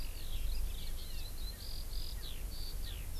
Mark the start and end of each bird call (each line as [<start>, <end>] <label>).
[0.00, 3.19] Eurasian Skylark (Alauda arvensis)
[1.49, 1.69] Erckel's Francolin (Pternistis erckelii)
[2.19, 2.29] Erckel's Francolin (Pternistis erckelii)
[2.79, 2.99] Erckel's Francolin (Pternistis erckelii)